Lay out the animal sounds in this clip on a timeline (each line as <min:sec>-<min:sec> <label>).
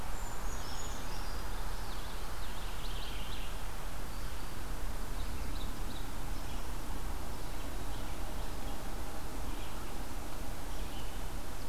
0:00.0-0:01.5 Brown Creeper (Certhia americana)
0:00.5-0:11.7 Red-eyed Vireo (Vireo olivaceus)
0:01.8-0:03.7 Purple Finch (Haemorhous purpureus)
0:04.8-0:06.4 Ovenbird (Seiurus aurocapilla)